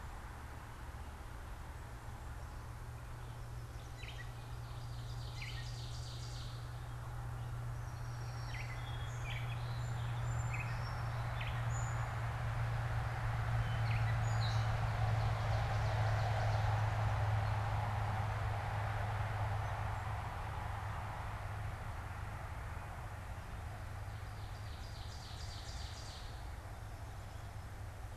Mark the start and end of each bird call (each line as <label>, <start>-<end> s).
Gray Catbird (Dumetella carolinensis), 3.7-11.9 s
Ovenbird (Seiurus aurocapilla), 4.7-6.9 s
Song Sparrow (Melospiza melodia), 7.6-12.1 s
Gray Catbird (Dumetella carolinensis), 13.4-14.9 s
Ovenbird (Seiurus aurocapilla), 14.6-17.1 s
Ovenbird (Seiurus aurocapilla), 24.1-26.5 s